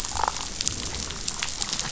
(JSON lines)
{"label": "biophony, damselfish", "recorder": "SoundTrap 500"}